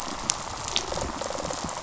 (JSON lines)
{"label": "biophony, rattle response", "recorder": "SoundTrap 500"}